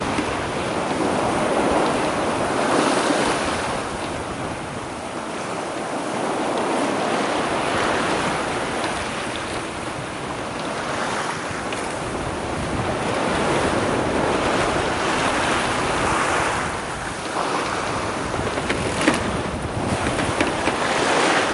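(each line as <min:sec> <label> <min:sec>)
0:00.1 Water waves lap and splash rhythmically. 0:21.5
0:18.3 A momentary mechanical groan or creak. 0:20.3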